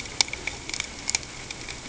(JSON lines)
{"label": "ambient", "recorder": "HydroMoth"}